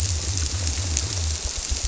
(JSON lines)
{"label": "biophony", "recorder": "SoundTrap 300"}